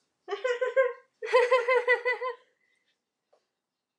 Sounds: Laughter